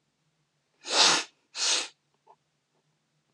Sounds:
Sniff